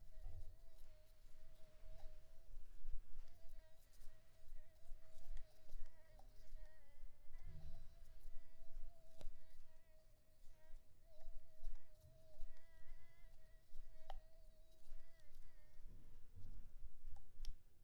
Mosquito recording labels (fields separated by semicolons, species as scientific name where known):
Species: Mansonia uniformis; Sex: female; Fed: unfed; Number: one; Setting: cup